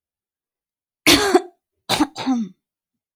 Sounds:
Throat clearing